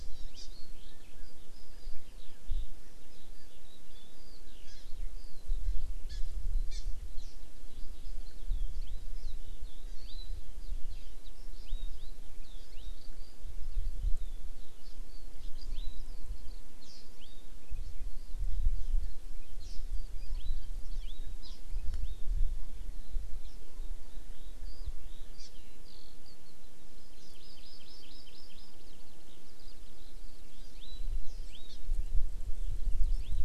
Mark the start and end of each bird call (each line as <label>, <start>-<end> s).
Eurasian Skylark (Alauda arvensis), 0.0-5.6 s
Hawaii Amakihi (Chlorodrepanis virens), 0.4-0.5 s
Hawaii Amakihi (Chlorodrepanis virens), 4.6-4.8 s
Hawaii Amakihi (Chlorodrepanis virens), 6.1-6.2 s
Hawaii Amakihi (Chlorodrepanis virens), 6.7-6.8 s
Hawaii Amakihi (Chlorodrepanis virens), 7.2-7.3 s
Eurasian Skylark (Alauda arvensis), 7.7-19.6 s
Hawaii Amakihi (Chlorodrepanis virens), 8.8-9.1 s
Hawaii Amakihi (Chlorodrepanis virens), 10.0-10.3 s
Hawaii Amakihi (Chlorodrepanis virens), 11.6-11.9 s
Hawaii Amakihi (Chlorodrepanis virens), 12.7-13.0 s
Hawaii Amakihi (Chlorodrepanis virens), 14.8-15.0 s
Hawaii Amakihi (Chlorodrepanis virens), 15.6-16.1 s
Hawaii Amakihi (Chlorodrepanis virens), 16.8-17.5 s
Hawaii Amakihi (Chlorodrepanis virens), 19.6-19.8 s
Hawaii Amakihi (Chlorodrepanis virens), 20.2-20.6 s
Hawaii Amakihi (Chlorodrepanis virens), 20.9-21.6 s
Eurasian Skylark (Alauda arvensis), 22.9-26.5 s
Hawaii Amakihi (Chlorodrepanis virens), 25.3-25.5 s
Hawaii Amakihi (Chlorodrepanis virens), 26.9-28.7 s
Eurasian Skylark (Alauda arvensis), 29.2-32.3 s
Hawaii Amakihi (Chlorodrepanis virens), 30.6-31.8 s
Hawaii Amakihi (Chlorodrepanis virens), 33.1-33.4 s